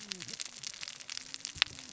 {"label": "biophony, cascading saw", "recorder": "SoundTrap 600 or HydroMoth"}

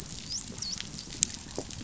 {"label": "biophony, dolphin", "recorder": "SoundTrap 500"}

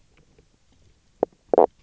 {"label": "biophony, knock croak", "recorder": "SoundTrap 300"}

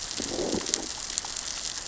{"label": "biophony, growl", "recorder": "SoundTrap 600 or HydroMoth"}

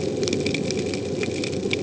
{"label": "ambient", "recorder": "HydroMoth"}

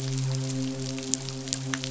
{"label": "biophony, midshipman", "recorder": "SoundTrap 500"}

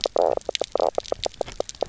{"label": "biophony, knock croak", "recorder": "SoundTrap 300"}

